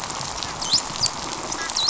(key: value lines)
label: biophony
recorder: SoundTrap 500

label: biophony, dolphin
recorder: SoundTrap 500